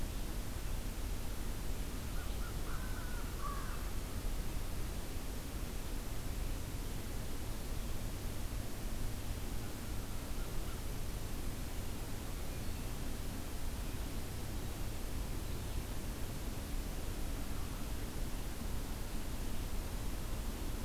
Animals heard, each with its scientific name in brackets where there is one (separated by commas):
American Crow (Corvus brachyrhynchos)